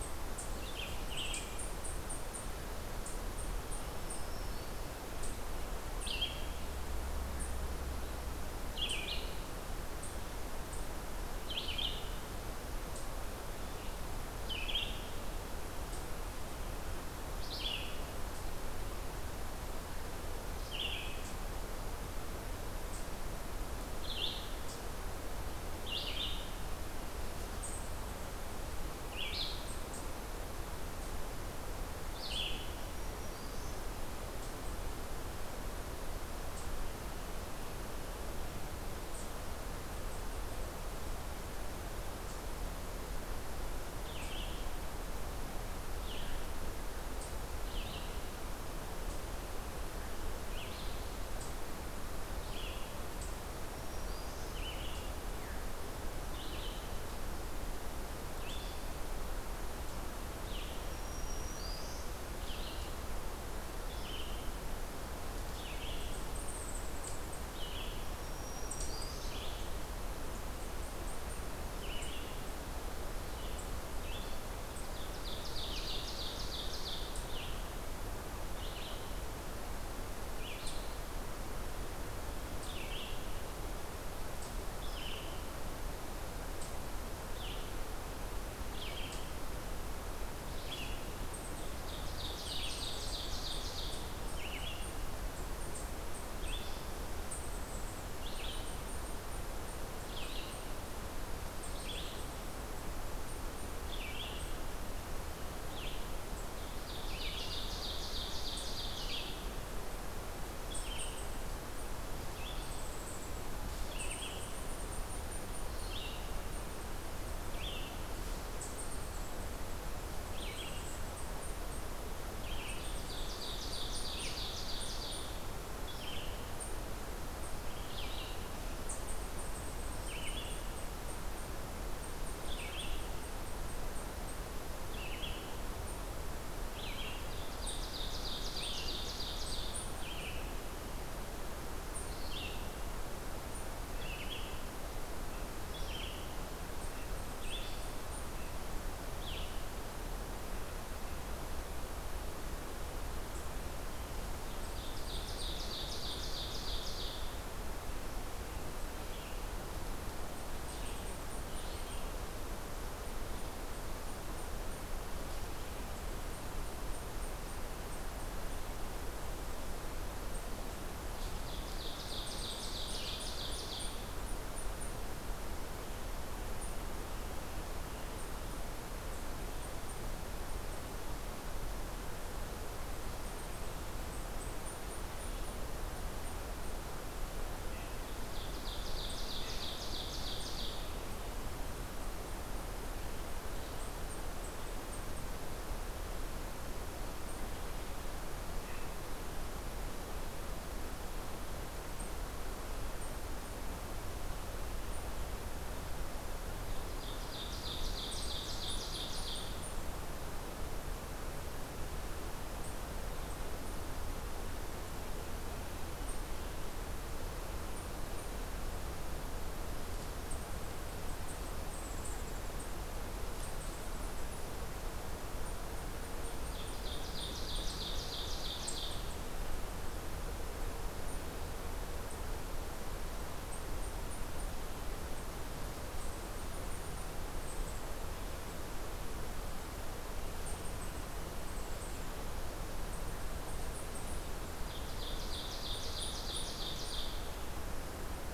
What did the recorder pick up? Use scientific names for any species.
Tamias striatus, Vireo olivaceus, Setophaga virens, Seiurus aurocapilla